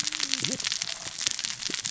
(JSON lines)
{"label": "biophony, cascading saw", "recorder": "SoundTrap 600 or HydroMoth"}